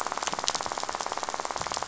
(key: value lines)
label: biophony, rattle
recorder: SoundTrap 500